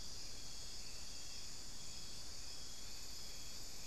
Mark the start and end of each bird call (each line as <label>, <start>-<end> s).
unidentified bird, 0.0-3.9 s